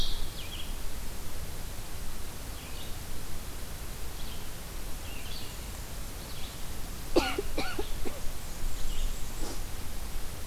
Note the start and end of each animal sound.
[0.00, 10.46] Red-eyed Vireo (Vireo olivaceus)
[8.00, 9.55] Blackburnian Warbler (Setophaga fusca)

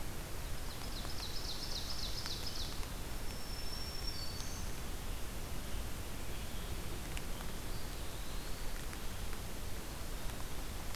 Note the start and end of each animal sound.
[0.44, 3.04] Ovenbird (Seiurus aurocapilla)
[2.91, 4.99] Black-throated Green Warbler (Setophaga virens)
[7.39, 9.03] Eastern Wood-Pewee (Contopus virens)

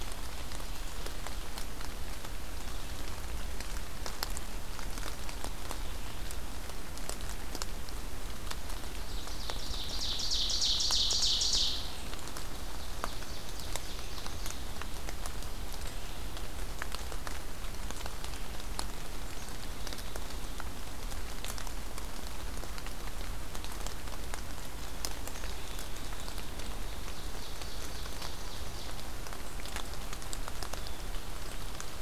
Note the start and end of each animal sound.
[9.02, 11.94] Ovenbird (Seiurus aurocapilla)
[12.70, 14.75] Ovenbird (Seiurus aurocapilla)
[26.84, 29.19] Ovenbird (Seiurus aurocapilla)
[31.02, 32.01] Black-capped Chickadee (Poecile atricapillus)

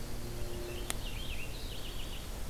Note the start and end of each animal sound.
[0.19, 1.77] Yellow-rumped Warbler (Setophaga coronata)
[0.29, 2.44] Purple Finch (Haemorhous purpureus)

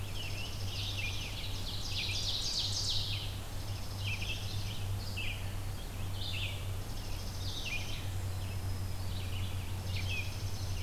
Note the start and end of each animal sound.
[0.00, 1.34] Dark-eyed Junco (Junco hyemalis)
[0.00, 1.50] Scarlet Tanager (Piranga olivacea)
[0.00, 10.82] Red-eyed Vireo (Vireo olivaceus)
[1.34, 3.52] Ovenbird (Seiurus aurocapilla)
[3.38, 4.95] Dark-eyed Junco (Junco hyemalis)
[6.48, 8.10] Dark-eyed Junco (Junco hyemalis)
[8.00, 9.49] Black-throated Green Warbler (Setophaga virens)
[9.66, 10.82] Dark-eyed Junco (Junco hyemalis)

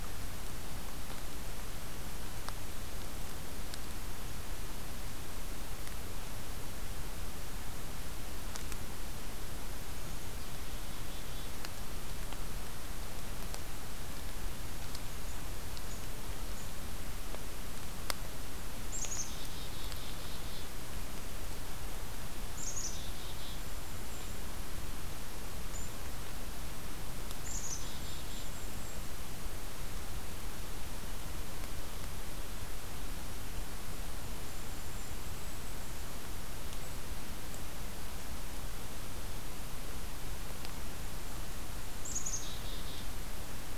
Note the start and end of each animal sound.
[9.73, 11.54] Black-capped Chickadee (Poecile atricapillus)
[18.88, 20.62] Black-capped Chickadee (Poecile atricapillus)
[22.55, 23.60] Black-capped Chickadee (Poecile atricapillus)
[23.43, 24.53] Golden-crowned Kinglet (Regulus satrapa)
[27.47, 28.51] Black-capped Chickadee (Poecile atricapillus)
[27.56, 29.02] Golden-crowned Kinglet (Regulus satrapa)
[34.08, 36.17] Golden-crowned Kinglet (Regulus satrapa)
[42.06, 43.06] Black-capped Chickadee (Poecile atricapillus)

